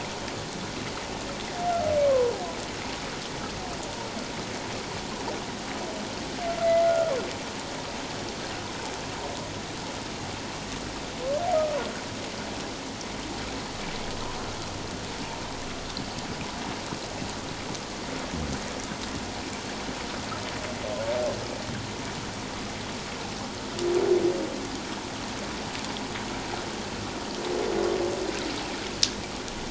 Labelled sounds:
2.0	2.3	humpback whale, 0.94 to 1.2 kHz
6.6	7.1	humpback whale, 1.2 to 2.1 kHz

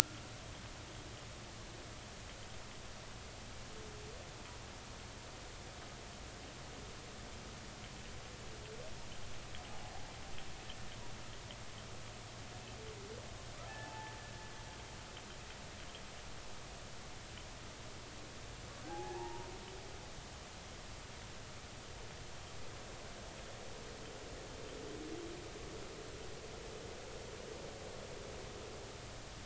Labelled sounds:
13.8	14.1	humpback whale, 0.80 to 0.93 kHz
18.8	19.5	humpback whale, 0.80 to 0.99 kHz

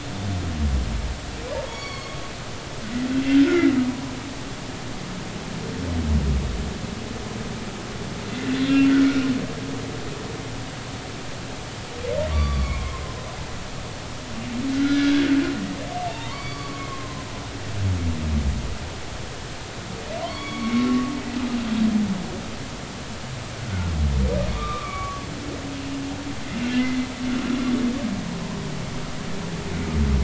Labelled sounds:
1.7	2.2	humpback whale, 1.0 to 6.8 kHz
3.4	4.1	humpback whale, 0.93 to 1.5 kHz
12.3	13.0	humpback whale, 0.99 to 4.7 kHz
14.7	15.3	humpback whale, 1.3 to 1.8 kHz
16.0	17.3	humpback whale, 0.80 to 4.6 kHz
20.2	21.1	humpback whale, 0.93 to 4.5 kHz
23.6	23.9	humpback whale, 1.3 to 1.6 kHz
24.5	25.2	humpback whale, 1.1 to 2.5 kHz

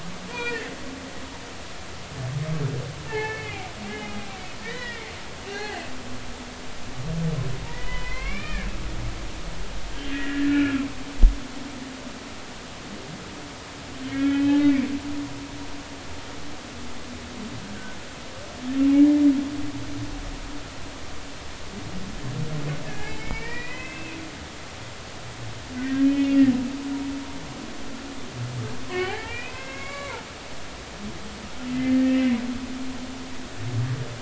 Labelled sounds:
0.3	0.7	humpback whale, 1.3 to 2.5 kHz
3.1	5.0	humpback whale, 0.80 to 3.1 kHz
5.4	5.8	humpback whale, 0.80 to 4.3 kHz
7.7	8.7	humpback whale, 0.96 to 3.7 kHz
10.1	10.9	humpback whale, 1.2 to 2.9 kHz
14.1	14.6	humpback whale, 1.3 to 3.2 kHz
22.9	24.2	humpback whale, 1.6 to 5.0 kHz
25.8	26.5	humpback whale, 1.4 to 3.1 kHz
28.9	30.2	humpback whale, 0.80 to 4.0 kHz
31.7	32.4	humpback whale, 1.7 to 2.1 kHz

